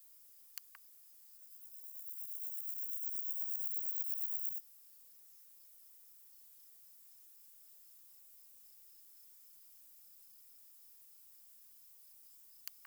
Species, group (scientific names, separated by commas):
Chorthippus bornhalmi, Orthoptera